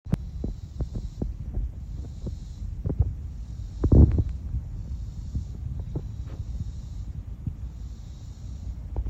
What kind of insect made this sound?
cicada